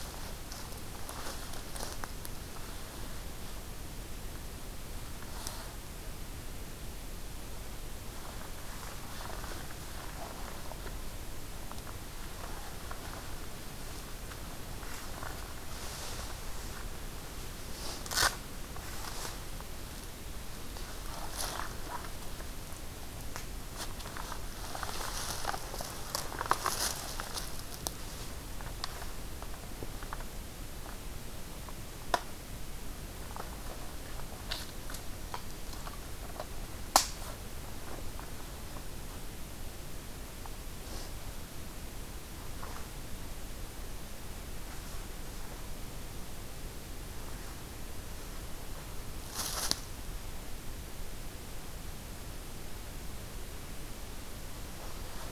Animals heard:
forest ambience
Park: Katahdin Woods and Waters National Monument